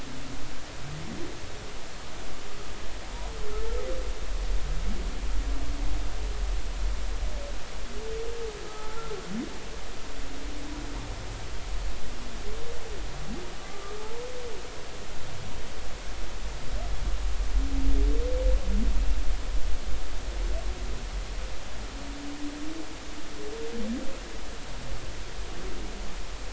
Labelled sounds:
8.7	9.1	humpback whale, 0.83 to 1.4 kHz
13.7	14.0	humpback whale, 1.2 to 1.3 kHz

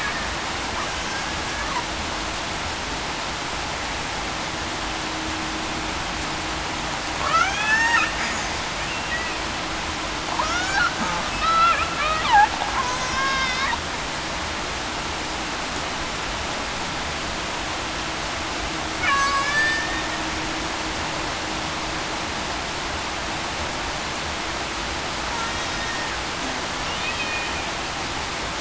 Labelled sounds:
7.3	8.1	killer whale, Bigg's (transient), 0.80 to 2.8 kHz
10.4	10.8	killer whale, Bigg's (transient), 1.2 to 1.8 kHz
11.4	11.8	killer whale, Bigg's (transient), 1.2 to 2.1 kHz
13.0	13.5	killer whale, Bigg's (transient), 1.0 to 1.1 kHz
19.0	20.0	killer whale, Bigg's (transient), 1.1 to 7.9 kHz
25.7	26.1	killer whale, Bigg's (transient), 1.8 to 1.9 kHz
27.2	27.5	killer whale, Bigg's (transient), 2.4 to 2.5 kHz

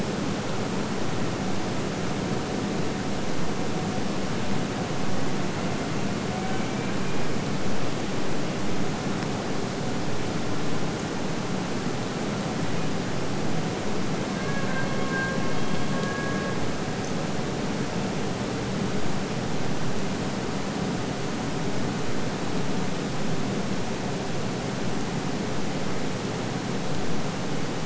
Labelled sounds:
5.2	7.6	killer whale, Bigg's (transient), AT1 transient, 0.51 to 3.4 kHz
14.1	17.1	killer whale, Bigg's (transient), AT1 transient, 0.93 to 3.5 kHz

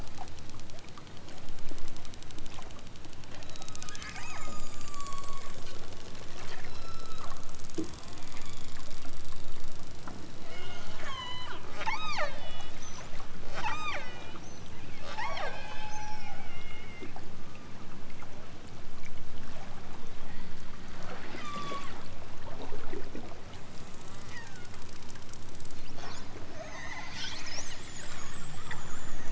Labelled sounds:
3.3	5.6	killer whale, southern Alaska resident, 0.69 to 5.8 kHz
6.6	7.3	killer whale, southern Alaska resident, 0.97 to 5.8 kHz
8.4	9.1	killer whale, southern Alaska resident, 1.6 to 4.1 kHz
10.4	12.8	killer whale, southern Alaska resident, 0.37 to 8.0 kHz
13.5	14.4	killer whale, southern Alaska resident, 0.51 to 8.0 kHz
15.0	16.4	killer whale, southern Alaska resident, 0.28 to 8.0 kHz
17.3	17.8	killer whale, southern Alaska resident, 0.92 to 5.6 kHz
20.3	20.9	killer whale, southern Alaska resident, 1.4 to 5.1 kHz
21.3	22.0	killer whale, southern Alaska resident, 0.69 to 8.0 kHz
24.2	24.8	killer whale, southern Alaska resident, 0.74 to 7.0 kHz
26.5	27.2	killer whale, southern Alaska resident, 0.46 to 6.8 kHz

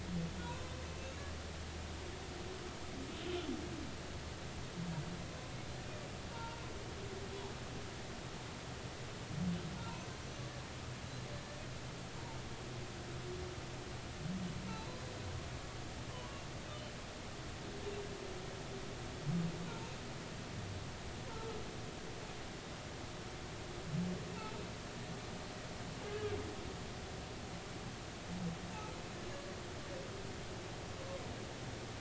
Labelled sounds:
0.9	1.2	humpback whale, 2.6 to 2.8 kHz
3.3	3.5	humpback whale, 3.0 to 3.2 kHz
6.3	6.6	humpback whale, 0.86 to 0.99 kHz
9.8	10.1	humpback whale, 2.5 to 2.8 kHz
14.7	15.0	humpback whale, 0.83 to 4.1 kHz
16.1	16.9	humpback whale, 0.93 to 3.1 kHz
19.6	19.9	humpback whale, 0.86 to 1.0 kHz
21.3	21.6	humpback whale, 1.2 to 1.4 kHz
24.3	24.6	humpback whale, 0.83 to 0.96 kHz
26.1	26.4	humpback whale, 1.6 to 1.7 kHz

